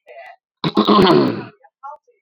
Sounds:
Throat clearing